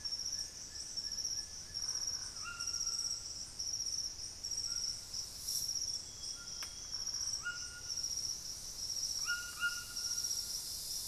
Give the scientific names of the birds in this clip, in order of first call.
Thamnophilus schistaceus, Ramphastos tucanus, unidentified bird